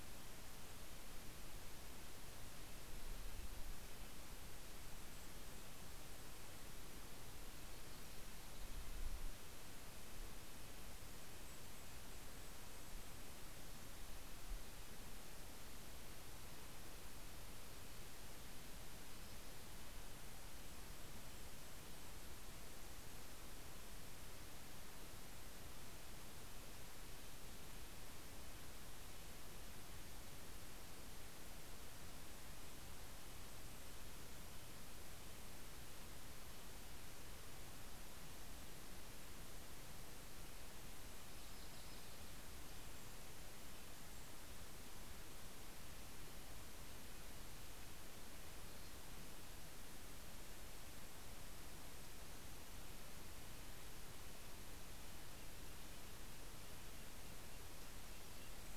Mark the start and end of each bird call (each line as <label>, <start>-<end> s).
Red-breasted Nuthatch (Sitta canadensis), 0.4-6.8 s
Golden-crowned Kinglet (Regulus satrapa), 3.6-7.1 s
Yellow-rumped Warbler (Setophaga coronata), 6.9-9.3 s
Red-breasted Nuthatch (Sitta canadensis), 7.4-22.6 s
Golden-crowned Kinglet (Regulus satrapa), 10.7-14.5 s
Golden-crowned Kinglet (Regulus satrapa), 19.3-23.6 s
Red-breasted Nuthatch (Sitta canadensis), 25.1-30.3 s
Golden-crowned Kinglet (Regulus satrapa), 31.1-35.7 s
Red-breasted Nuthatch (Sitta canadensis), 31.7-58.5 s
Golden-crowned Kinglet (Regulus satrapa), 40.0-45.1 s
Yellow-rumped Warbler (Setophaga coronata), 41.0-42.7 s
Mountain Chickadee (Poecile gambeli), 48.1-49.8 s